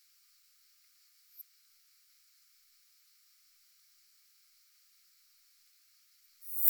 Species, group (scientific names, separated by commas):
Poecilimon affinis, Orthoptera